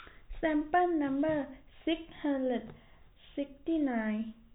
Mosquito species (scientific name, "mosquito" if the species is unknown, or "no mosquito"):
no mosquito